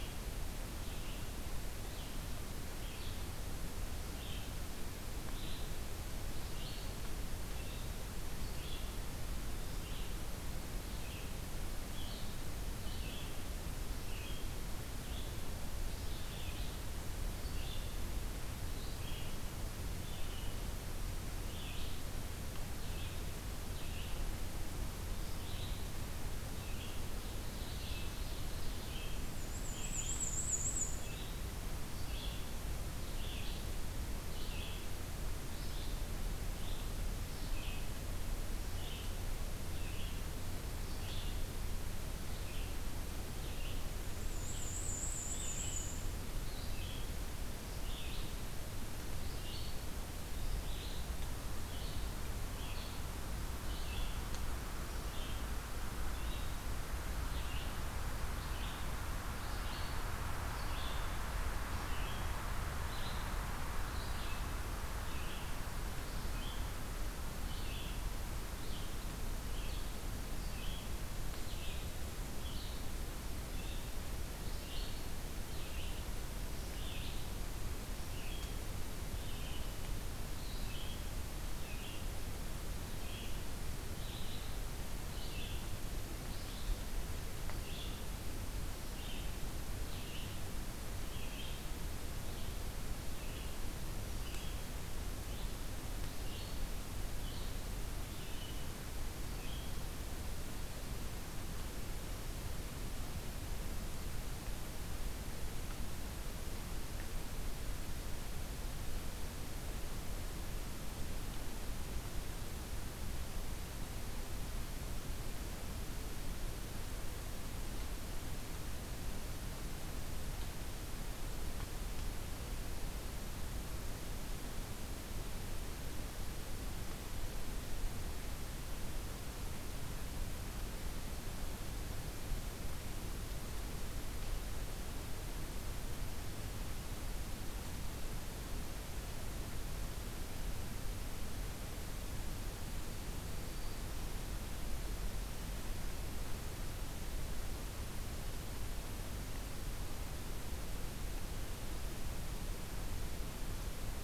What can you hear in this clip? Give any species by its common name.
Red-eyed Vireo, Ovenbird, Black-and-white Warbler, Black-throated Green Warbler